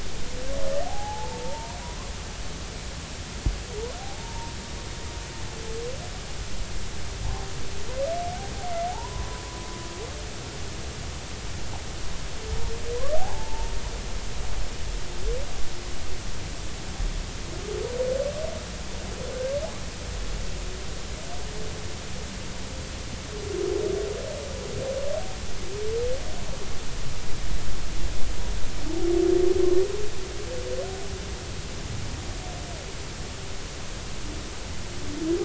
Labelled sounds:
0.8	1.4	humpback whale, 0.80 to 0.96 kHz
1.8	2.8	humpback whale, 0.86 to 1.2 kHz
4.0	4.5	humpback whale, 0.80 to 1.1 kHz
8.9	9.3	humpback whale, 0.80 to 1.1 kHz
13.2	13.7	humpback whale, 0.80 to 1.1 kHz

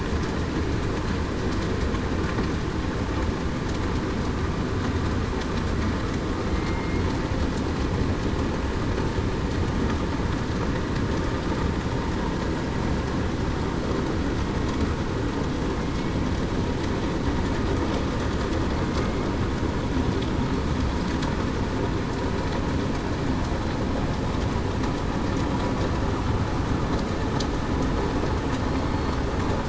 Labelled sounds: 6.5	7.0	killer whale, southern resident, 2.1 to 2.2 kHz

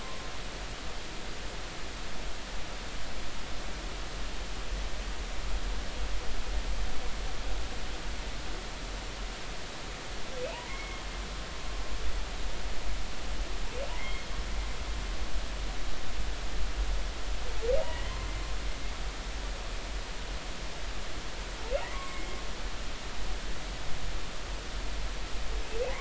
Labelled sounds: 10.6	11.0	humpback whale, 1.9 to 2.2 kHz
13.9	14.3	humpback whale, 2.0 to 3.3 kHz
17.8	18.3	humpback whale, 0.99 to 2.1 kHz
21.9	22.4	humpback whale, 1.0 to 7.6 kHz

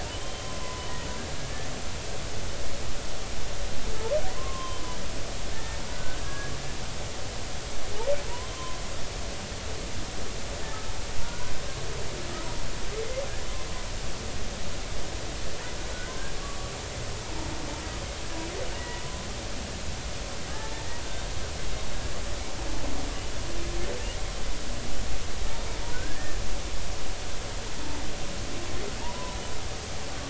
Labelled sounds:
0.1	0.9	humpback whale, 0.90 to 3.2 kHz
4.4	6.5	humpback whale, 0.86 to 3.2 kHz
8.5	8.8	humpback whale, 0.96 to 1.2 kHz
11.2	11.5	humpback whale, 0.90 to 1.6 kHz
16.4	16.7	humpback whale, 1.1 to 1.3 kHz
18.8	19.0	humpback whale, 1.9 to 2.0 kHz
20.5	20.9	humpback whale, 0.83 to 0.93 kHz
25.9	26.4	humpback whale, 1.4 to 1.9 kHz
29.0	29.4	humpback whale, 0.86 to 1.1 kHz

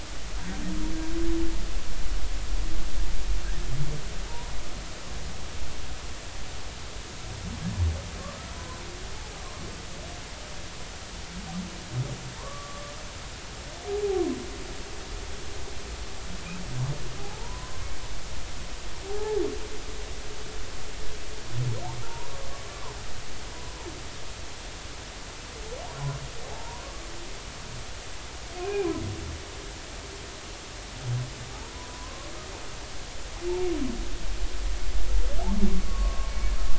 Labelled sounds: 8.5	8.8	humpback whale, 0.96 to 1.1 kHz
12.4	12.8	humpback whale, 0.86 to 1.2 kHz
13.9	14.2	humpback whale, 0.80 to 0.86 kHz
17.2	17.9	humpback whale, 0.80 to 1.2 kHz
19.0	19.4	humpback whale, 0.80 to 0.93 kHz
26.5	27.0	humpback whale, 0.80 to 1.2 kHz
28.6	28.9	humpback whale, 2.3 to 2.6 kHz
31.7	32.3	humpback whale, 0.93 to 1.2 kHz
35.9	36.5	humpback whale, 1.0 to 4.4 kHz

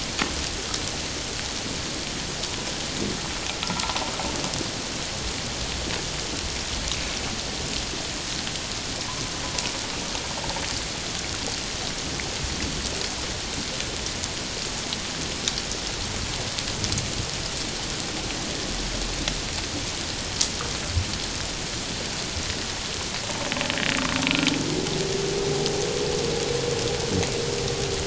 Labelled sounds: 3.6	3.9	humpback whale, 1.2 to 1.4 kHz

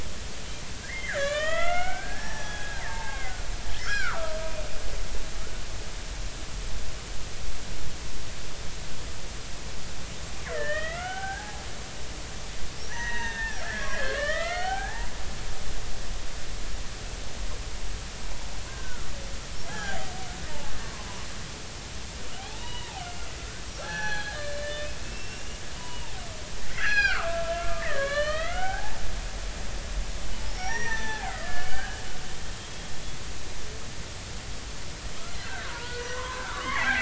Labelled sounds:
0.8	3.5	killer whale, Bigg's (transient), 0.80 to 6.0 kHz
3.8	4.4	killer whale, Bigg's (transient), 0.93 to 3.4 kHz
10.5	11.6	killer whale, Bigg's (transient), 0.80 to 3.3 kHz
12.9	15.1	killer whale, Bigg's (transient), 0.80 to 3.7 kHz
18.7	19.1	killer whale, Bigg's (transient), 1.3 to 1.6 kHz
19.7	20.1	killer whale, Bigg's (transient), 0.80 to 1.8 kHz
20.9	21.2	killer whale, Bigg's (transient), 0.93 to 1.1 kHz
22.3	23.1	killer whale, Bigg's (transient), 0.80 to 3.5 kHz
23.6	26.1	killer whale, Bigg's (transient), 0.80 to 6.0 kHz
26.7	27.5	killer whale, Bigg's (transient), 0.99 to 4.3 kHz
27.8	29.0	killer whale, Bigg's (transient), 0.80 to 4.4 kHz
30.4	32.0	killer whale, Bigg's (transient), 0.80 to 6.1 kHz
32.6	32.9	killer whale, Bigg's (transient), 2.2 to 2.3 kHz
35.3	37.0	killer whale, Bigg's (transient), 0.90 to 4.3 kHz

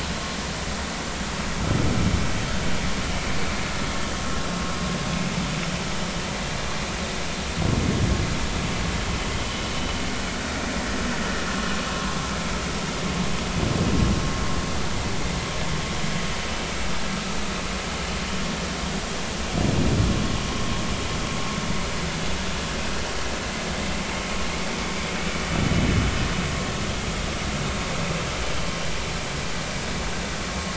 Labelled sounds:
9.4	9.7	vessel noise, 2.9 to 3.1 kHz

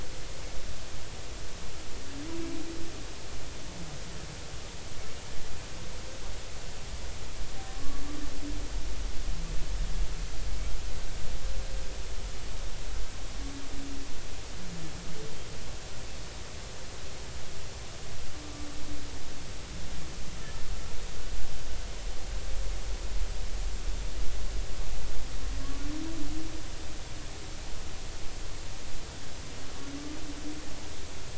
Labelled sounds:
7.8	8.0	humpback whale, 1.1 to 1.2 kHz

